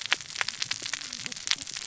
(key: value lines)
label: biophony, cascading saw
recorder: SoundTrap 600 or HydroMoth